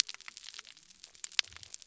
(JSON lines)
{"label": "biophony", "recorder": "SoundTrap 300"}